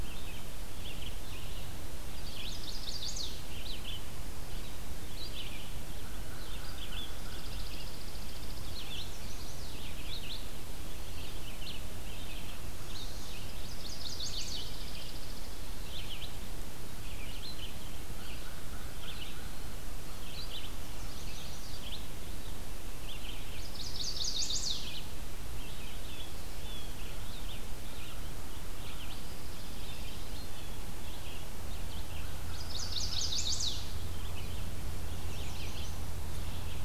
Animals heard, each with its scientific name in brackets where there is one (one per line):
Blue Jay (Cyanocitta cristata)
Chipping Sparrow (Spizella passerina)
Chestnut-sided Warbler (Setophaga pensylvanica)
American Crow (Corvus brachyrhynchos)
Eastern Wood-Pewee (Contopus virens)
Red-eyed Vireo (Vireo olivaceus)